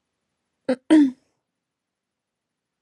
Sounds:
Throat clearing